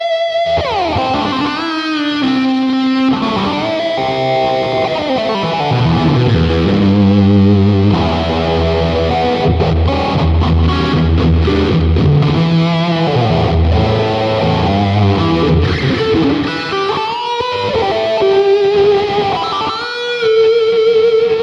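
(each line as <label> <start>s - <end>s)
An electric guitar plays a melody. 0.0s - 21.4s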